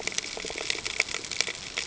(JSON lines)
{"label": "ambient", "recorder": "HydroMoth"}